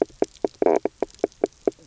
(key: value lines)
label: biophony, knock croak
recorder: SoundTrap 300